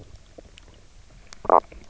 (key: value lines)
label: biophony, knock croak
recorder: SoundTrap 300